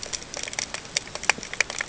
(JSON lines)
{"label": "ambient", "recorder": "HydroMoth"}